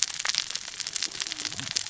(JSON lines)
{"label": "biophony, cascading saw", "recorder": "SoundTrap 600 or HydroMoth"}